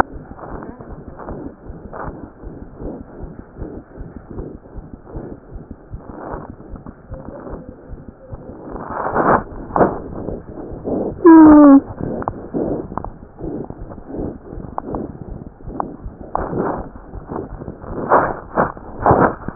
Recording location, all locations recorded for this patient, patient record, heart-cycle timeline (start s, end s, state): aortic valve (AV)
aortic valve (AV)+pulmonary valve (PV)+tricuspid valve (TV)+mitral valve (MV)
#Age: Child
#Sex: Male
#Height: 79.0 cm
#Weight: 9.79 kg
#Pregnancy status: False
#Murmur: Present
#Murmur locations: mitral valve (MV)+pulmonary valve (PV)+tricuspid valve (TV)
#Most audible location: tricuspid valve (TV)
#Systolic murmur timing: Holosystolic
#Systolic murmur shape: Plateau
#Systolic murmur grading: I/VI
#Systolic murmur pitch: Low
#Systolic murmur quality: Harsh
#Diastolic murmur timing: nan
#Diastolic murmur shape: nan
#Diastolic murmur grading: nan
#Diastolic murmur pitch: nan
#Diastolic murmur quality: nan
#Outcome: Abnormal
#Campaign: 2015 screening campaign
0.00	2.06	unannotated
2.06	2.12	S1
2.12	2.20	systole
2.20	2.26	S2
2.26	2.44	diastole
2.44	2.49	S1
2.49	2.61	systole
2.61	2.64	S2
2.64	2.83	diastole
2.83	2.88	S1
2.88	2.99	systole
2.99	3.03	S2
3.03	3.21	diastole
3.21	3.28	S1
3.28	3.38	systole
3.38	3.42	S2
3.42	3.59	diastole
3.59	3.65	S1
3.65	3.75	systole
3.75	3.80	S2
3.80	3.99	diastole
3.99	4.03	S1
4.03	4.15	systole
4.15	4.19	S2
4.19	4.35	diastole
4.35	4.42	S1
4.42	4.53	systole
4.53	4.58	S2
4.58	4.76	diastole
4.76	4.82	S1
4.82	4.92	systole
4.92	4.98	S2
4.98	5.14	diastole
5.14	5.19	S1
5.19	5.31	systole
5.31	5.35	S2
5.35	5.53	diastole
5.53	5.59	S1
5.59	5.69	systole
5.69	5.75	S2
5.75	5.91	diastole
5.91	5.97	S1
5.97	6.08	systole
6.08	6.13	S2
6.13	6.32	diastole
6.32	6.38	S1
6.38	6.48	systole
6.48	6.52	S2
6.52	6.71	diastole
6.71	6.76	S1
6.76	6.86	systole
6.86	6.91	S2
6.91	7.11	diastole
7.11	7.16	S1
7.16	7.28	systole
7.28	7.31	S2
7.31	7.52	diastole
7.52	7.56	S1
7.56	7.68	systole
7.68	7.71	S2
7.71	7.92	diastole
7.92	7.96	S1
7.96	19.55	unannotated